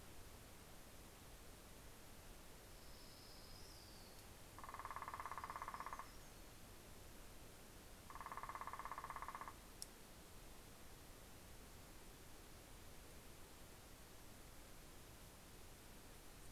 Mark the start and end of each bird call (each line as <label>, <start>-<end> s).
Orange-crowned Warbler (Leiothlypis celata), 2.4-4.4 s
Hermit Warbler (Setophaga occidentalis), 4.8-6.8 s